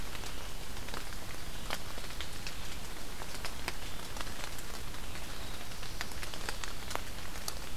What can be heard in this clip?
forest ambience